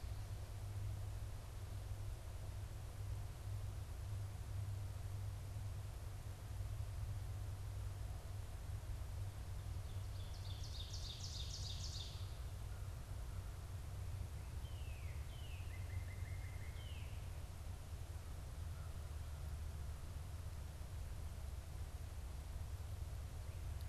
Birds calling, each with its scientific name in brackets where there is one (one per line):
Northern Cardinal (Cardinalis cardinalis)
Ovenbird (Seiurus aurocapilla)